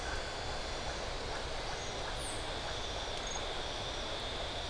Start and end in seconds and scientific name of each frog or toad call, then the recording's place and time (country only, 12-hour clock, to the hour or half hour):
0.5	3.2	Leptodactylus notoaktites
Brazil, 5:30pm